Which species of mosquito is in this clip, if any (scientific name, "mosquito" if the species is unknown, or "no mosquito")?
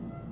Aedes albopictus